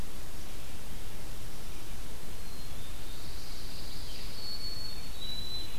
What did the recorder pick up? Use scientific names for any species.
Poecile atricapillus, Setophaga pinus, Zonotrichia albicollis